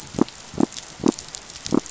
{"label": "biophony", "recorder": "SoundTrap 500"}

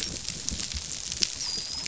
{"label": "biophony, dolphin", "recorder": "SoundTrap 500"}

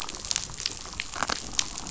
{"label": "biophony, damselfish", "recorder": "SoundTrap 500"}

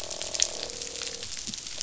{"label": "biophony, croak", "recorder": "SoundTrap 500"}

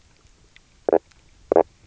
{"label": "biophony, knock croak", "recorder": "SoundTrap 300"}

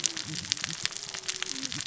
{"label": "biophony, cascading saw", "recorder": "SoundTrap 600 or HydroMoth"}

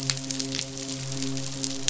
{"label": "biophony, midshipman", "recorder": "SoundTrap 500"}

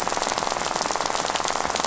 {"label": "biophony, rattle", "recorder": "SoundTrap 500"}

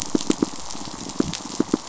{"label": "biophony, pulse", "recorder": "SoundTrap 500"}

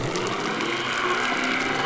{"label": "anthrophony, boat engine", "recorder": "SoundTrap 300"}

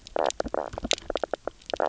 {"label": "biophony, knock croak", "recorder": "SoundTrap 300"}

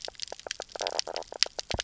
{"label": "biophony, knock croak", "recorder": "SoundTrap 300"}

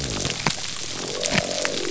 {"label": "biophony", "recorder": "SoundTrap 300"}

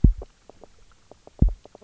{"label": "biophony, knock croak", "recorder": "SoundTrap 300"}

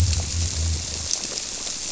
{"label": "biophony", "recorder": "SoundTrap 300"}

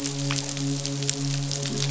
{"label": "biophony", "recorder": "SoundTrap 500"}
{"label": "biophony, midshipman", "recorder": "SoundTrap 500"}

